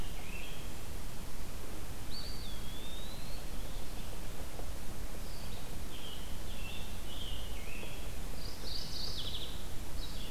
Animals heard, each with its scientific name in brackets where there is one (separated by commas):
Eastern Wood-Pewee (Contopus virens), Red-eyed Vireo (Vireo olivaceus), Mourning Warbler (Geothlypis philadelphia), Scarlet Tanager (Piranga olivacea)